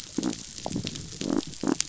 {"label": "biophony", "recorder": "SoundTrap 500"}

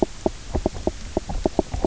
{"label": "biophony, knock croak", "recorder": "SoundTrap 300"}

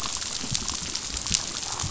{"label": "biophony, chatter", "recorder": "SoundTrap 500"}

